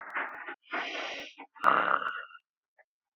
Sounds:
Sneeze